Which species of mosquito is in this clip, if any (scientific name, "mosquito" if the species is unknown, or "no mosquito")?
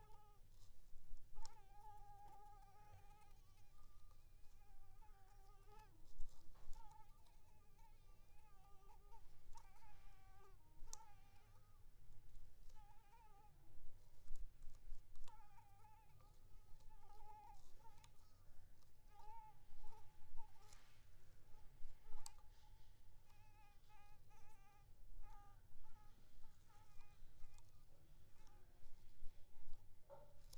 Anopheles arabiensis